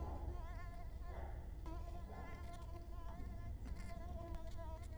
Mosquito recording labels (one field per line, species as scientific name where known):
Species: Culex quinquefasciatus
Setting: cup